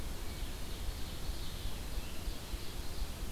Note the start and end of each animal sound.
0.0s-3.3s: Ovenbird (Seiurus aurocapilla)

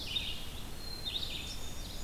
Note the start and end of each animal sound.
0.0s-1.7s: Black-capped Chickadee (Poecile atricapillus)
0.0s-2.0s: Red-eyed Vireo (Vireo olivaceus)
1.0s-2.0s: Blackburnian Warbler (Setophaga fusca)

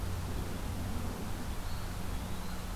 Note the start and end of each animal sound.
1.5s-2.8s: Eastern Wood-Pewee (Contopus virens)

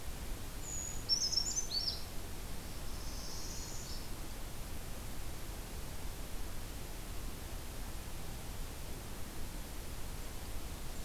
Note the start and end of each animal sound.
0.5s-2.1s: Brown Creeper (Certhia americana)
2.7s-4.2s: Northern Parula (Setophaga americana)
2.8s-3.8s: Black-throated Green Warbler (Setophaga virens)

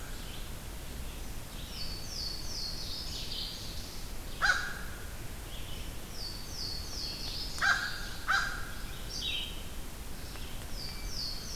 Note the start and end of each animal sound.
0.0s-10.8s: Red-eyed Vireo (Vireo olivaceus)
1.4s-4.1s: Louisiana Waterthrush (Parkesia motacilla)
4.3s-4.6s: American Crow (Corvus brachyrhynchos)
5.8s-8.3s: Louisiana Waterthrush (Parkesia motacilla)
7.5s-8.5s: American Crow (Corvus brachyrhynchos)
10.6s-11.6s: Louisiana Waterthrush (Parkesia motacilla)

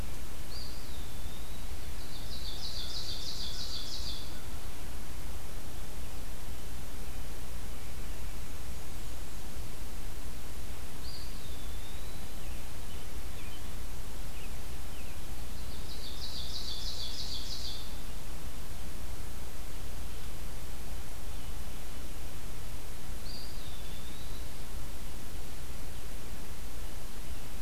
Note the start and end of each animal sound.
0.3s-1.8s: Eastern Wood-Pewee (Contopus virens)
1.9s-4.5s: Ovenbird (Seiurus aurocapilla)
10.7s-12.5s: Eastern Wood-Pewee (Contopus virens)
15.4s-17.9s: Ovenbird (Seiurus aurocapilla)
23.1s-25.0s: Eastern Wood-Pewee (Contopus virens)

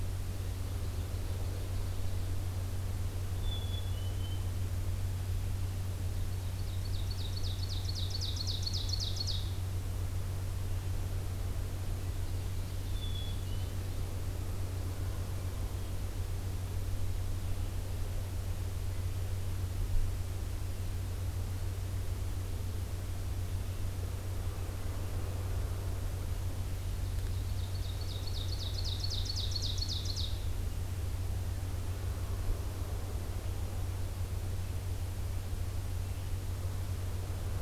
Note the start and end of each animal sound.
0.4s-2.3s: Ovenbird (Seiurus aurocapilla)
3.3s-4.6s: Black-capped Chickadee (Poecile atricapillus)
6.2s-9.5s: Ovenbird (Seiurus aurocapilla)
11.9s-14.1s: Ovenbird (Seiurus aurocapilla)
12.8s-13.8s: Black-capped Chickadee (Poecile atricapillus)
26.8s-30.5s: Ovenbird (Seiurus aurocapilla)

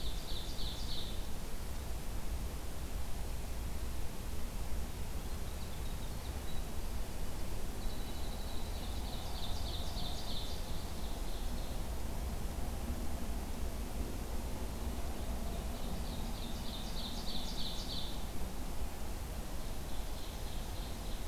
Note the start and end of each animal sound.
0.0s-1.3s: Ovenbird (Seiurus aurocapilla)
5.2s-9.5s: Winter Wren (Troglodytes hiemalis)
7.9s-9.4s: Red-breasted Nuthatch (Sitta canadensis)
9.1s-11.9s: Ovenbird (Seiurus aurocapilla)
15.4s-18.2s: Ovenbird (Seiurus aurocapilla)
19.6s-21.3s: Ovenbird (Seiurus aurocapilla)

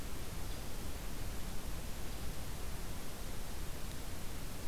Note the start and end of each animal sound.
0.4s-0.6s: Hairy Woodpecker (Dryobates villosus)

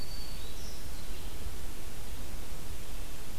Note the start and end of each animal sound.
0.0s-1.1s: Black-throated Green Warbler (Setophaga virens)
0.0s-3.4s: Red-eyed Vireo (Vireo olivaceus)

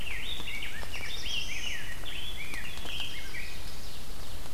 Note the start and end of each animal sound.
0.0s-3.7s: Rose-breasted Grosbeak (Pheucticus ludovicianus)
0.4s-1.8s: Black-throated Blue Warbler (Setophaga caerulescens)
2.6s-3.8s: Chestnut-sided Warbler (Setophaga pensylvanica)
3.1s-4.5s: Ovenbird (Seiurus aurocapilla)

